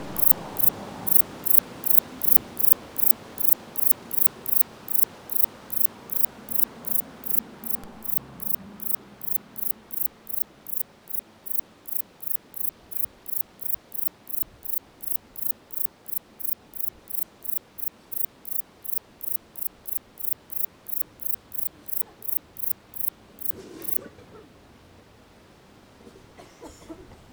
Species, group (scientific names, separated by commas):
Platycleis albopunctata, Orthoptera